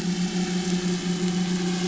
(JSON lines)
{"label": "anthrophony, boat engine", "recorder": "SoundTrap 500"}